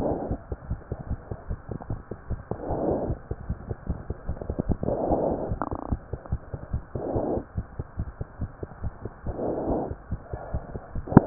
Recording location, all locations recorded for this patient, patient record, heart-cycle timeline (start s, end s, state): pulmonary valve (PV)
aortic valve (AV)+pulmonary valve (PV)+tricuspid valve (TV)+mitral valve (MV)
#Age: Child
#Sex: Male
#Height: 93.0 cm
#Weight: 19.2 kg
#Pregnancy status: False
#Murmur: Absent
#Murmur locations: nan
#Most audible location: nan
#Systolic murmur timing: nan
#Systolic murmur shape: nan
#Systolic murmur grading: nan
#Systolic murmur pitch: nan
#Systolic murmur quality: nan
#Diastolic murmur timing: nan
#Diastolic murmur shape: nan
#Diastolic murmur grading: nan
#Diastolic murmur pitch: nan
#Diastolic murmur quality: nan
#Outcome: Normal
#Campaign: 2015 screening campaign
0.00	5.90	unannotated
5.90	5.97	S1
5.97	6.10	systole
6.10	6.18	S2
6.18	6.29	diastole
6.29	6.40	S1
6.40	6.51	systole
6.51	6.60	S2
6.60	6.71	diastole
6.71	6.81	S1
6.81	6.93	systole
6.93	7.01	S2
7.01	7.14	diastole
7.14	7.26	S1
7.26	7.34	systole
7.34	7.42	S2
7.42	7.56	diastole
7.56	7.63	S1
7.63	7.77	systole
7.77	7.86	S2
7.86	7.97	diastole
7.97	8.08	S1
8.08	8.18	systole
8.18	8.28	S2
8.28	8.39	diastole
8.39	8.49	S1
8.49	8.59	systole
8.59	8.67	S2
8.67	8.80	diastole
8.80	8.91	S1
8.91	9.03	systole
9.03	9.12	S2
9.12	9.24	diastole
9.24	9.35	S1
9.35	9.46	systole
9.46	9.54	S2
9.54	9.68	diastole
9.68	9.76	S1
9.76	9.89	systole
9.89	9.96	S2
9.96	10.10	diastole
10.10	10.20	S1
10.20	10.31	systole
10.31	10.40	S2
10.40	10.54	diastole
10.54	10.62	S1
10.62	10.73	systole
10.73	10.80	S2
10.80	10.94	diastole
10.94	11.03	S1
11.03	11.26	unannotated